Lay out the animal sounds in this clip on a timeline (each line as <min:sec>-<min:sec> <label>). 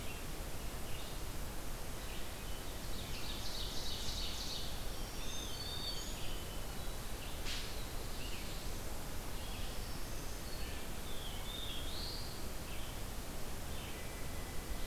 0:00.0-0:14.9 Red-eyed Vireo (Vireo olivaceus)
0:02.6-0:04.8 Ovenbird (Seiurus aurocapilla)
0:05.0-0:06.3 Black-throated Green Warbler (Setophaga virens)
0:05.1-0:06.4 Black-throated Blue Warbler (Setophaga caerulescens)
0:07.5-0:08.8 Black-throated Blue Warbler (Setophaga caerulescens)
0:09.7-0:11.0 Black-throated Green Warbler (Setophaga virens)
0:10.9-0:12.5 Black-throated Blue Warbler (Setophaga caerulescens)